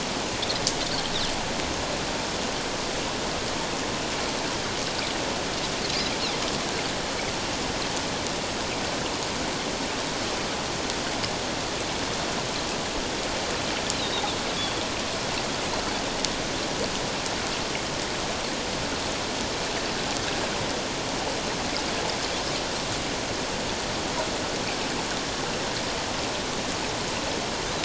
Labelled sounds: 13.9	14.8	Pacific white-sided dolphin, 3.3 to 4.2 kHz

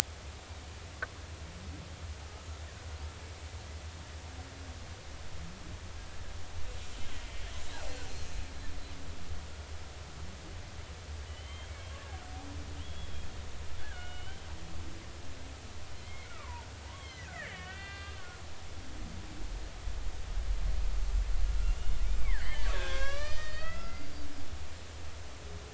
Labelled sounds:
11.3	11.7	killer whale, Bigg's (transient), 2.9 to 3.3 kHz
12.7	14.5	killer whale, Bigg's (transient), 1.4 to 3.4 kHz
16.0	16.7	killer whale, Bigg's (transient), 0.86 to 2.7 kHz
16.9	18.4	killer whale, Bigg's (transient), 1.2 to 4.4 kHz
21.5	24.1	killer whale, Bigg's (transient), 1.0 to 8.0 kHz

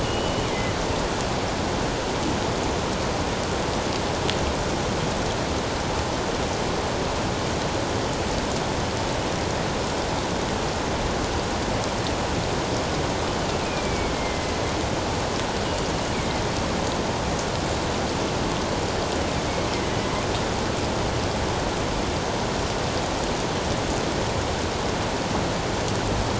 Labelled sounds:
0.0	0.5	killer whale, northern resident, G clan, 2.8 to 3.0 kHz
13.6	14.5	killer whale, northern resident, A clan, AA subclan, A04 pod, 2.0 to 2.6 kHz

